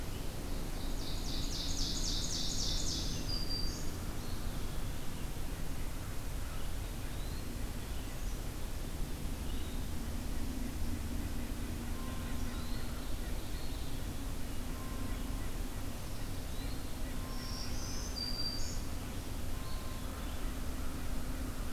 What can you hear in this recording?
Ovenbird, Black-throated Green Warbler, Eastern Wood-Pewee, White-breasted Nuthatch